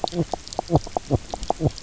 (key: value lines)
label: biophony, knock croak
recorder: SoundTrap 300